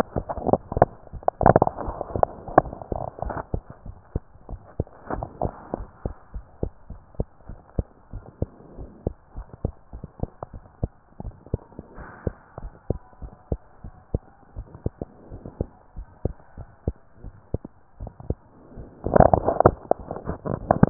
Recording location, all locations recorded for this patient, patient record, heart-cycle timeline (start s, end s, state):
pulmonary valve (PV)
aortic valve (AV)+pulmonary valve (PV)+tricuspid valve (TV)+mitral valve (MV)
#Age: Child
#Sex: Female
#Height: 123.0 cm
#Weight: 31.2 kg
#Pregnancy status: False
#Murmur: Absent
#Murmur locations: nan
#Most audible location: nan
#Systolic murmur timing: nan
#Systolic murmur shape: nan
#Systolic murmur grading: nan
#Systolic murmur pitch: nan
#Systolic murmur quality: nan
#Diastolic murmur timing: nan
#Diastolic murmur shape: nan
#Diastolic murmur grading: nan
#Diastolic murmur pitch: nan
#Diastolic murmur quality: nan
#Outcome: Normal
#Campaign: 2015 screening campaign
0.00	3.82	unannotated
3.82	3.95	S1
3.95	4.09	systole
4.09	4.22	S2
4.22	4.44	diastole
4.44	4.61	S1
4.61	4.74	systole
4.74	4.87	S2
4.87	5.15	diastole
5.15	5.25	S1
5.25	5.39	systole
5.39	5.51	S2
5.51	5.76	diastole
5.76	5.88	S1
5.88	6.00	systole
6.00	6.14	S2
6.14	6.33	diastole
6.33	6.42	S1
6.42	6.58	systole
6.58	6.71	S2
6.71	6.89	diastole
6.89	7.00	S1
7.00	7.16	systole
7.16	7.28	S2
7.28	7.46	diastole
7.46	7.57	S1
7.57	7.75	systole
7.75	7.86	S2
7.86	8.11	diastole
8.11	8.22	S1
8.22	8.39	systole
8.39	8.48	S2
8.48	8.76	diastole
8.76	8.87	S1
8.87	9.04	systole
9.04	9.14	S2
9.14	9.32	diastole
9.32	9.46	S1
9.46	9.62	systole
9.62	9.73	S2
9.73	9.90	diastole
9.90	10.04	S1
10.04	10.18	systole
10.18	10.29	S2
10.29	10.52	diastole
10.52	10.62	S1
10.62	10.80	systole
10.80	10.90	S2
10.90	11.22	diastole
11.22	11.33	S1
11.33	11.51	systole
11.51	11.61	S2
11.61	11.94	diastole
11.94	12.09	S1
12.09	20.90	unannotated